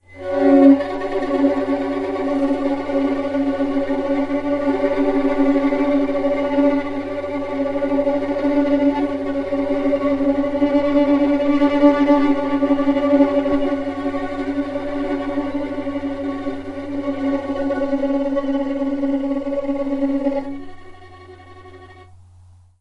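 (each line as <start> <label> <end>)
0.1 A violin plays loudly and rhythmically in different patterns. 20.6
20.7 A violin fades away gradually indoors. 22.8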